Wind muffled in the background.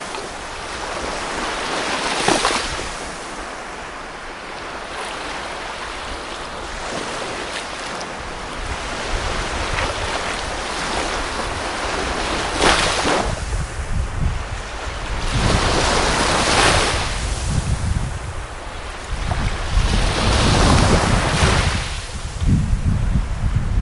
13.4 16.0, 22.3 23.8

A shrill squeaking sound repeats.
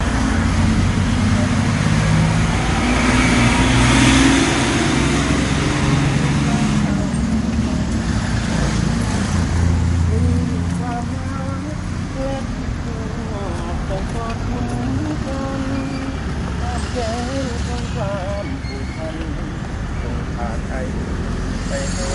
18.3 20.6

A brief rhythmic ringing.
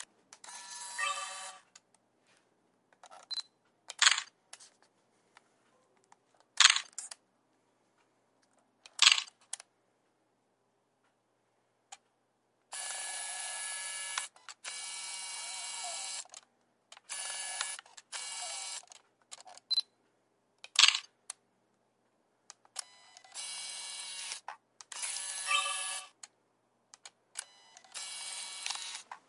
0.7 1.6, 25.2 26.3

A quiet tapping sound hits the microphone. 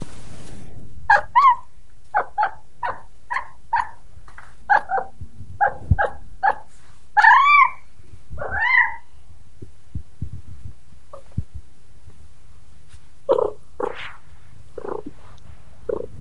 9.6 11.7

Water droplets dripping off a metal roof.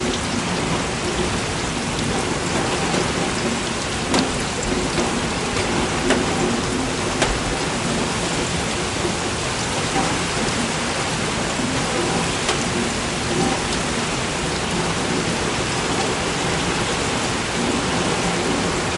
5.5 7.3

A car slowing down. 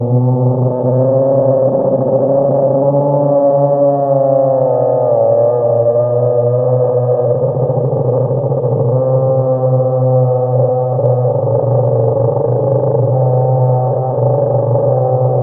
7.5 8.7

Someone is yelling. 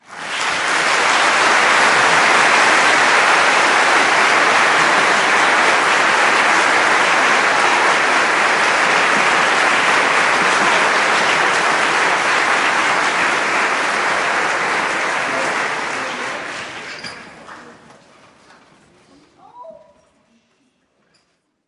19.3 20.0

